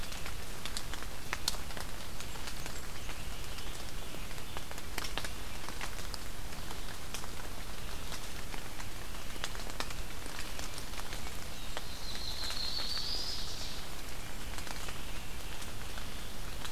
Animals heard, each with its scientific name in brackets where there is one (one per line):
Blackburnian Warbler (Setophaga fusca)
Ovenbird (Seiurus aurocapilla)
Yellow-rumped Warbler (Setophaga coronata)